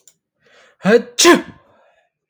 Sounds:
Sneeze